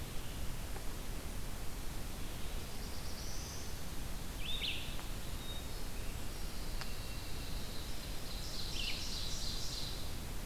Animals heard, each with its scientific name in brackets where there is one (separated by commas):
Brown Creeper (Certhia americana), Black-throated Blue Warbler (Setophaga caerulescens), Pine Warbler (Setophaga pinus), Ovenbird (Seiurus aurocapilla), Red-eyed Vireo (Vireo olivaceus)